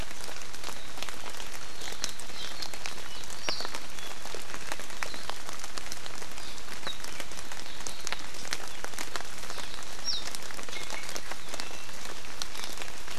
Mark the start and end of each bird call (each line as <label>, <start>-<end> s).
Apapane (Himatione sanguinea), 10.0-10.2 s
Iiwi (Drepanis coccinea), 10.7-11.0 s
Iiwi (Drepanis coccinea), 11.5-11.9 s